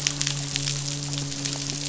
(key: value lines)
label: biophony, midshipman
recorder: SoundTrap 500